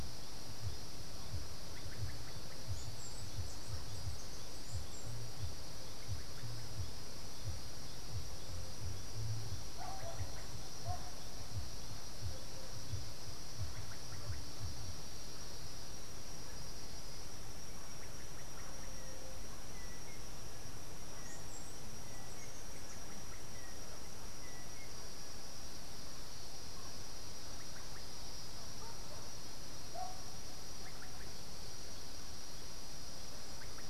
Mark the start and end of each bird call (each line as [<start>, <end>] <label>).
[2.29, 5.29] Andean Emerald (Uranomitra franciae)
[18.79, 24.99] Yellow-backed Oriole (Icterus chrysater)
[20.89, 23.19] Andean Emerald (Uranomitra franciae)